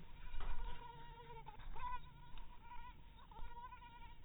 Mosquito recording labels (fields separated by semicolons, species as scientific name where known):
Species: mosquito; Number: one; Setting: cup